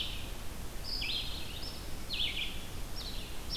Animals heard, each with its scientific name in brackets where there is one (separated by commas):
Red-eyed Vireo (Vireo olivaceus)